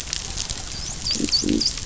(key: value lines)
label: biophony, dolphin
recorder: SoundTrap 500

label: biophony
recorder: SoundTrap 500